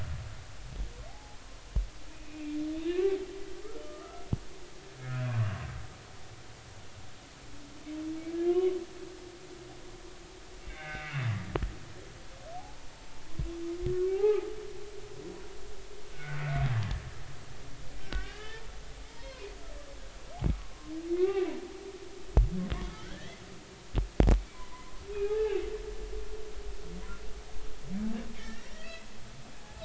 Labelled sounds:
1.1	1.4	humpback whale, 0.80 to 0.93 kHz
2.1	3.0	humpback whale, 2.3 to 3.9 kHz
3.8	5.5	humpback whale, 0.99 to 1.5 kHz
8.5	8.7	humpback whale, 1.0 to 3.1 kHz
10.7	11.3	humpback whale, 1.5 to 2.9 kHz
12.5	12.9	humpback whale, 0.80 to 0.99 kHz
14.1	14.5	humpback whale, 0.80 to 0.90 kHz
16.1	16.4	humpback whale, 1.4 to 1.6 kHz
18.0	18.6	humpback whale, 1.4 to 3.2 kHz
19.1	19.5	humpback whale, 0.86 to 4.4 kHz
20.5	21.5	humpback whale, 0.99 to 2.8 kHz
23.0	23.4	humpback whale, 1.3 to 2.1 kHz
24.5	25.7	humpback whale, 0.80 to 2.9 kHz
28.3	29.1	humpback whale, 1.7 to 2.8 kHz
29.6	29.8	humpback whale, 0.80 to 1.5 kHz

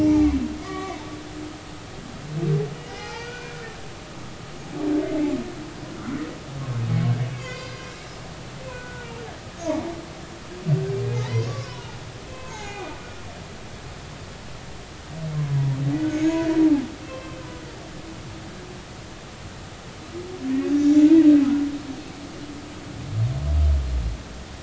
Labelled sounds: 0.0	1.0	humpback whale, 0.80 to 2.3 kHz
2.8	3.6	humpback whale, 0.80 to 2.6 kHz
5.9	6.2	humpback whale, 1.2 to 1.5 kHz
7.3	8.2	humpback whale, 0.99 to 6.0 kHz
8.7	9.2	humpback whale, 1.3 to 1.5 kHz
9.6	9.9	humpback whale, 0.80 to 6.8 kHz
11.2	13.3	humpback whale, 0.80 to 6.9 kHz
15.5	16.4	humpback whale, 0.93 to 6.7 kHz
17.0	17.4	humpback whale, 0.99 to 3.2 kHz
20.7	21.3	humpback whale, 0.83 to 3.8 kHz

